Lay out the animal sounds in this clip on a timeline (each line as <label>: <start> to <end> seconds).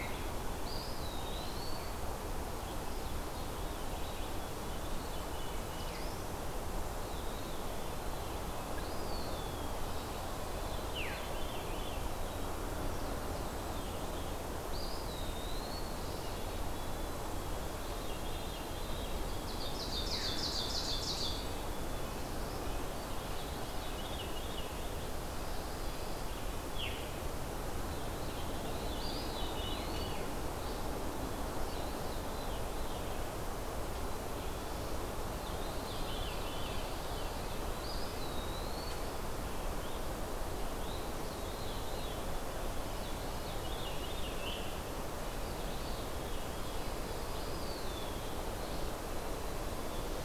Red-eyed Vireo (Vireo olivaceus): 0.0 to 46.1 seconds
Eastern Wood-Pewee (Contopus virens): 0.6 to 1.9 seconds
Veery (Catharus fuscescens): 2.6 to 4.5 seconds
Black-capped Chickadee (Poecile atricapillus): 3.8 to 4.9 seconds
Veery (Catharus fuscescens): 4.7 to 5.9 seconds
Black-throated Blue Warbler (Setophaga caerulescens): 5.4 to 6.3 seconds
Veery (Catharus fuscescens): 6.8 to 8.8 seconds
Eastern Wood-Pewee (Contopus virens): 8.7 to 10.0 seconds
Veery (Catharus fuscescens): 10.4 to 12.2 seconds
Black-capped Chickadee (Poecile atricapillus): 12.0 to 13.0 seconds
Veery (Catharus fuscescens): 12.9 to 14.3 seconds
Eastern Wood-Pewee (Contopus virens): 14.6 to 15.9 seconds
Black-capped Chickadee (Poecile atricapillus): 16.2 to 17.8 seconds
Veery (Catharus fuscescens): 17.8 to 19.2 seconds
Ovenbird (Seiurus aurocapilla): 19.1 to 21.6 seconds
Red-breasted Nuthatch (Sitta canadensis): 21.3 to 26.7 seconds
Veery (Catharus fuscescens): 23.2 to 24.6 seconds
Pine Warbler (Setophaga pinus): 24.9 to 26.3 seconds
Veery (Catharus fuscescens): 26.6 to 27.3 seconds
Veery (Catharus fuscescens): 27.7 to 30.4 seconds
Eastern Wood-Pewee (Contopus virens): 28.8 to 30.4 seconds
Veery (Catharus fuscescens): 31.3 to 33.0 seconds
Black-capped Chickadee (Poecile atricapillus): 33.9 to 34.8 seconds
Veery (Catharus fuscescens): 35.4 to 37.5 seconds
Red-breasted Nuthatch (Sitta canadensis): 37.2 to 39.2 seconds
Eastern Wood-Pewee (Contopus virens): 37.7 to 39.0 seconds
Veery (Catharus fuscescens): 40.7 to 42.3 seconds
Veery (Catharus fuscescens): 42.8 to 44.6 seconds
Veery (Catharus fuscescens): 45.3 to 47.0 seconds
Dark-eyed Junco (Junco hyemalis): 46.3 to 47.5 seconds
Eastern Wood-Pewee (Contopus virens): 47.3 to 48.4 seconds
Black-capped Chickadee (Poecile atricapillus): 49.1 to 50.2 seconds